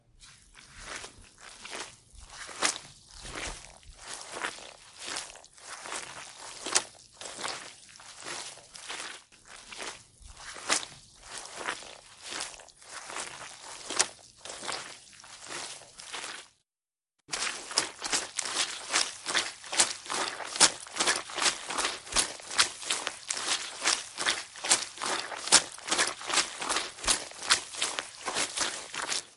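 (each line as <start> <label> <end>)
0.1 Footsteps on wet muddy ground as a person walks slowly. 16.5
17.2 Fast footsteps running on dry gravel. 29.3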